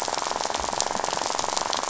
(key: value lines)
label: biophony, rattle
recorder: SoundTrap 500